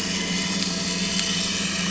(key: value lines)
label: anthrophony, boat engine
recorder: SoundTrap 500